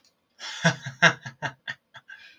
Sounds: Laughter